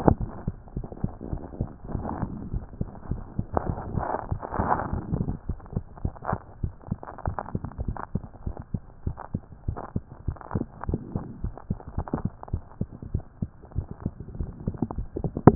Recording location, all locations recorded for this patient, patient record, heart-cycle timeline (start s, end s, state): mitral valve (MV)
pulmonary valve (PV)+tricuspid valve (TV)+mitral valve (MV)
#Age: Child
#Sex: Male
#Height: 121.0 cm
#Weight: 24.2 kg
#Pregnancy status: False
#Murmur: Absent
#Murmur locations: nan
#Most audible location: nan
#Systolic murmur timing: nan
#Systolic murmur shape: nan
#Systolic murmur grading: nan
#Systolic murmur pitch: nan
#Systolic murmur quality: nan
#Diastolic murmur timing: nan
#Diastolic murmur shape: nan
#Diastolic murmur grading: nan
#Diastolic murmur pitch: nan
#Diastolic murmur quality: nan
#Outcome: Normal
#Campaign: 2014 screening campaign
0.00	8.46	unannotated
8.46	8.56	S1
8.56	8.72	systole
8.72	8.82	S2
8.82	9.06	diastole
9.06	9.16	S1
9.16	9.32	systole
9.32	9.42	S2
9.42	9.66	diastole
9.66	9.76	S1
9.76	9.94	systole
9.94	10.04	S2
10.04	10.26	diastole
10.26	10.38	S1
10.38	10.55	systole
10.55	10.66	S2
10.66	10.89	diastole
10.89	11.00	S1
11.00	11.14	systole
11.14	11.24	S2
11.24	11.42	diastole
11.42	11.54	S1
11.54	11.68	systole
11.68	11.78	S2
11.78	11.96	diastole
11.96	12.06	S1
12.06	12.22	systole
12.22	12.30	S2
12.30	12.52	diastole
12.52	12.62	S1
12.62	12.80	systole
12.80	12.88	S2
12.88	13.13	diastole
13.13	13.24	S1
13.24	13.40	systole
13.40	13.50	S2
13.50	13.76	diastole
13.76	13.86	S1
13.86	14.04	systole
14.04	14.12	S2
14.12	14.38	diastole
14.38	15.55	unannotated